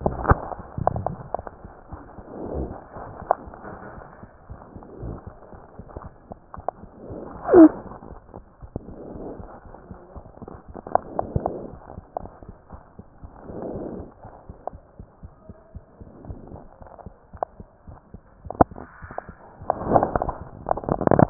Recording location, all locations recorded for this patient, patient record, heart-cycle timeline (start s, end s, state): aortic valve (AV)
aortic valve (AV)+pulmonary valve (PV)+tricuspid valve (TV)+mitral valve (MV)
#Age: Child
#Sex: Female
#Height: nan
#Weight: nan
#Pregnancy status: False
#Murmur: Absent
#Murmur locations: nan
#Most audible location: nan
#Systolic murmur timing: nan
#Systolic murmur shape: nan
#Systolic murmur grading: nan
#Systolic murmur pitch: nan
#Systolic murmur quality: nan
#Diastolic murmur timing: nan
#Diastolic murmur shape: nan
#Diastolic murmur grading: nan
#Diastolic murmur pitch: nan
#Diastolic murmur quality: nan
#Outcome: Normal
#Campaign: 2015 screening campaign
0.00	12.68	unannotated
12.68	12.80	S1
12.80	12.96	systole
12.96	13.03	S2
13.03	13.20	diastole
13.20	13.27	S1
13.27	13.46	systole
13.46	13.53	S2
13.53	13.72	diastole
13.72	13.80	S1
13.80	13.97	systole
13.97	14.04	S2
14.04	14.23	diastole
14.23	14.31	S1
14.31	14.48	systole
14.48	14.54	S2
14.54	14.71	diastole
14.71	14.77	S1
14.77	14.98	systole
14.98	15.05	S2
15.05	15.22	diastole
15.22	15.29	S1
15.29	15.48	systole
15.48	15.54	S2
15.54	15.73	diastole
15.73	15.81	S1
15.81	15.99	systole
15.99	16.05	S2
16.05	16.27	diastole
16.27	16.34	S1
16.34	16.53	systole
16.53	16.57	S2
16.57	16.80	diastole
16.80	16.85	S1
16.85	17.05	systole
17.05	17.09	S2
17.09	17.32	diastole
17.32	17.39	S1
17.39	17.58	systole
17.58	17.65	S2
17.65	17.86	diastole
17.86	17.97	S1
17.97	18.13	systole
18.13	18.19	S2
18.19	18.44	diastole
18.44	18.50	S1
18.50	21.30	unannotated